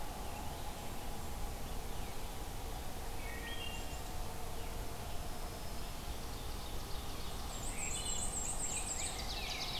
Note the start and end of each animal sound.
[3.11, 3.90] Wood Thrush (Hylocichla mustelina)
[4.96, 6.44] Black-throated Green Warbler (Setophaga virens)
[5.96, 7.74] Ovenbird (Seiurus aurocapilla)
[7.38, 9.20] Black-and-white Warbler (Mniotilta varia)
[7.62, 8.32] Wood Thrush (Hylocichla mustelina)
[8.64, 9.79] Rose-breasted Grosbeak (Pheucticus ludovicianus)
[8.74, 9.79] Ovenbird (Seiurus aurocapilla)

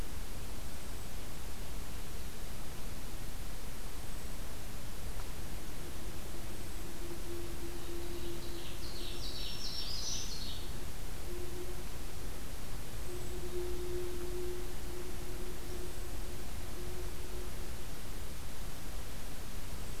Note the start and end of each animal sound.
[8.00, 10.76] Ovenbird (Seiurus aurocapilla)
[8.88, 10.38] Black-throated Green Warbler (Setophaga virens)

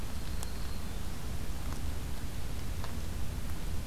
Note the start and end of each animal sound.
[0.00, 1.22] Black-throated Green Warbler (Setophaga virens)

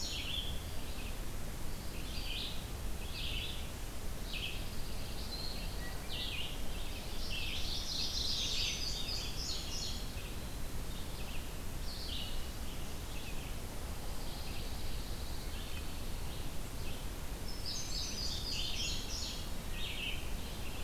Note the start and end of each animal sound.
[0.00, 0.76] Indigo Bunting (Passerina cyanea)
[0.00, 20.84] Red-eyed Vireo (Vireo olivaceus)
[4.17, 6.12] Pine Warbler (Setophaga pinus)
[7.44, 8.90] Chestnut-sided Warbler (Setophaga pensylvanica)
[7.98, 10.21] Indigo Bunting (Passerina cyanea)
[13.89, 16.46] Pine Warbler (Setophaga pinus)
[17.36, 19.61] Indigo Bunting (Passerina cyanea)

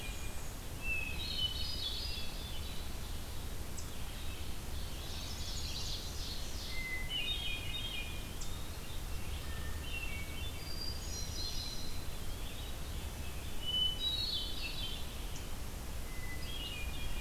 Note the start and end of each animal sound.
[0.00, 0.65] Black-and-white Warbler (Mniotilta varia)
[0.00, 3.29] Red-eyed Vireo (Vireo olivaceus)
[0.79, 2.47] Hermit Thrush (Catharus guttatus)
[3.75, 17.20] Red-eyed Vireo (Vireo olivaceus)
[4.46, 6.96] Ovenbird (Seiurus aurocapilla)
[4.86, 6.01] Chestnut-sided Warbler (Setophaga pensylvanica)
[6.69, 8.21] Hermit Thrush (Catharus guttatus)
[8.05, 8.78] Eastern Wood-Pewee (Contopus virens)
[9.18, 12.00] Hermit Thrush (Catharus guttatus)
[12.16, 12.81] Eastern Wood-Pewee (Contopus virens)
[13.51, 14.96] Hermit Thrush (Catharus guttatus)
[16.00, 17.20] Hermit Thrush (Catharus guttatus)

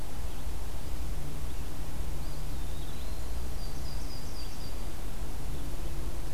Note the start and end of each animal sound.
[2.14, 3.43] Eastern Wood-Pewee (Contopus virens)
[3.43, 4.88] Yellow-rumped Warbler (Setophaga coronata)

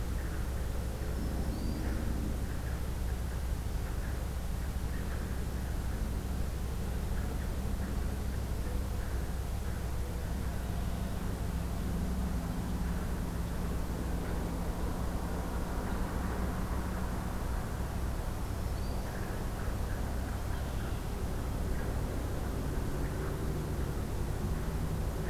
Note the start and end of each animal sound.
[1.03, 1.90] Black-throated Green Warbler (Setophaga virens)
[8.38, 10.47] Mourning Dove (Zenaida macroura)
[18.37, 19.18] Black-throated Green Warbler (Setophaga virens)
[20.41, 21.15] Red-winged Blackbird (Agelaius phoeniceus)

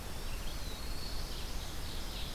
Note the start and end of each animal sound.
[0.00, 0.95] Eastern Wood-Pewee (Contopus virens)
[0.00, 1.72] Black-throated Green Warbler (Setophaga virens)
[0.00, 2.34] Red-eyed Vireo (Vireo olivaceus)
[0.92, 2.34] Ovenbird (Seiurus aurocapilla)

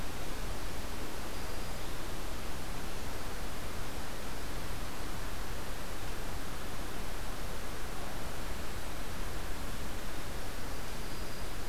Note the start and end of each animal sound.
[1.07, 1.93] Black-throated Green Warbler (Setophaga virens)
[10.76, 11.69] Black-throated Green Warbler (Setophaga virens)

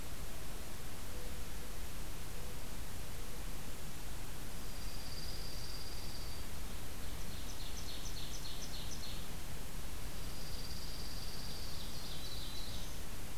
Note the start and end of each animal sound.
[0.00, 3.61] Mourning Dove (Zenaida macroura)
[4.63, 6.45] Dark-eyed Junco (Junco hyemalis)
[7.10, 9.28] Ovenbird (Seiurus aurocapilla)
[10.06, 11.61] Dark-eyed Junco (Junco hyemalis)
[11.42, 13.01] Black-throated Green Warbler (Setophaga virens)

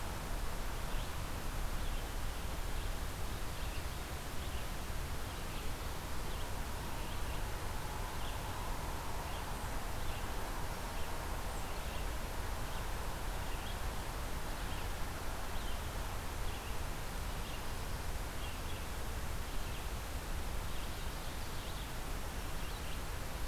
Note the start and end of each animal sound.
[0.79, 23.47] Red-eyed Vireo (Vireo olivaceus)

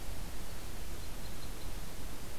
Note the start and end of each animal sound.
[0.00, 0.63] Hermit Thrush (Catharus guttatus)
[0.00, 1.79] Red Crossbill (Loxia curvirostra)

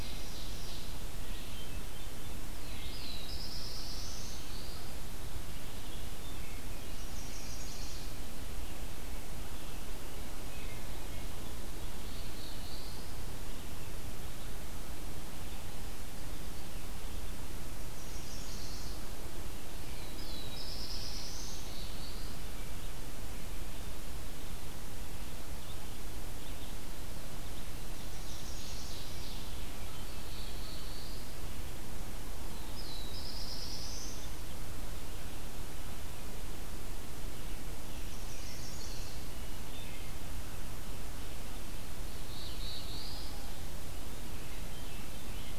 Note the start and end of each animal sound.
[0.00, 0.96] Ovenbird (Seiurus aurocapilla)
[0.00, 45.58] Red-eyed Vireo (Vireo olivaceus)
[1.09, 2.38] Hermit Thrush (Catharus guttatus)
[2.42, 5.00] Black-throated Blue Warbler (Setophaga caerulescens)
[6.83, 8.03] Chestnut-sided Warbler (Setophaga pensylvanica)
[11.78, 13.10] Black-throated Blue Warbler (Setophaga caerulescens)
[17.92, 19.02] Chestnut-sided Warbler (Setophaga pensylvanica)
[19.62, 22.49] Black-throated Blue Warbler (Setophaga caerulescens)
[27.95, 29.00] Chestnut-sided Warbler (Setophaga pensylvanica)
[28.01, 29.58] Ovenbird (Seiurus aurocapilla)
[29.91, 31.23] Black-throated Blue Warbler (Setophaga caerulescens)
[32.45, 34.33] Black-throated Blue Warbler (Setophaga caerulescens)
[38.09, 39.21] Chestnut-sided Warbler (Setophaga pensylvanica)
[42.04, 43.35] Black-throated Blue Warbler (Setophaga caerulescens)

